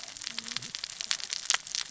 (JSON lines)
{"label": "biophony, cascading saw", "recorder": "SoundTrap 600 or HydroMoth"}